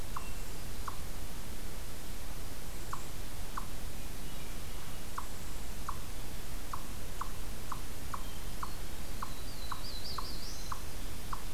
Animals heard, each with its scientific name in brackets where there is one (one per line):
Hermit Thrush (Catharus guttatus)
Black-throated Blue Warbler (Setophaga caerulescens)
Eastern Chipmunk (Tamias striatus)